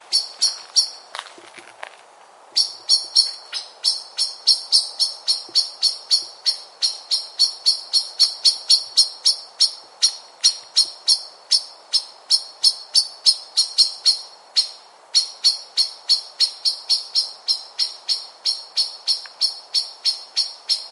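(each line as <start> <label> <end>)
0.0 A bird chirps. 1.2
2.5 A bird chirps repeatedly. 20.9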